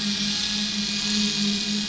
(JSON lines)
{"label": "anthrophony, boat engine", "recorder": "SoundTrap 500"}